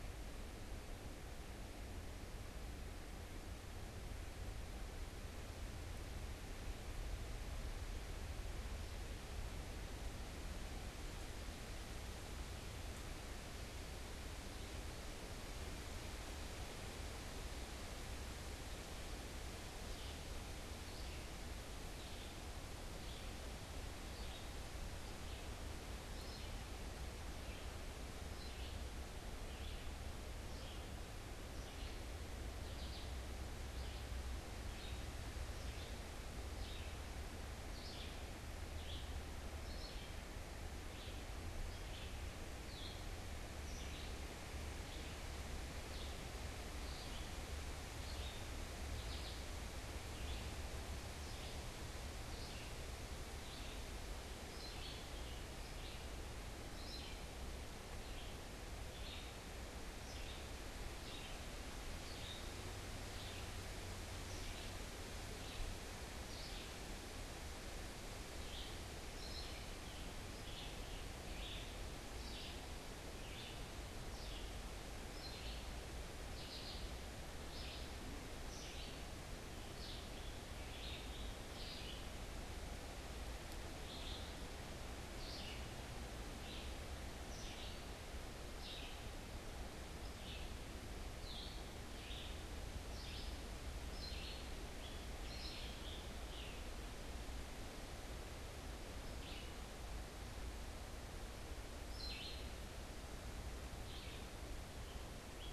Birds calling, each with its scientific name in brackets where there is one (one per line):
Red-eyed Vireo (Vireo olivaceus)
Scarlet Tanager (Piranga olivacea)